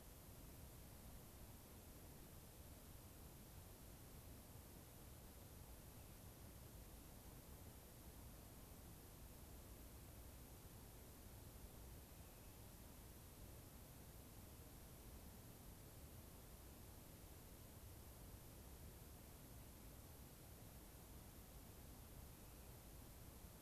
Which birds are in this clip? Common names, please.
Rock Wren